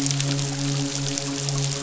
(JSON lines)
{"label": "biophony, midshipman", "recorder": "SoundTrap 500"}